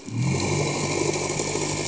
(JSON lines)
{"label": "anthrophony, boat engine", "recorder": "HydroMoth"}